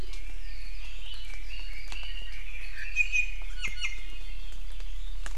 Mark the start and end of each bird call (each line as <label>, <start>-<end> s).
Red-billed Leiothrix (Leiothrix lutea), 0.0-3.0 s
Iiwi (Drepanis coccinea), 3.0-4.2 s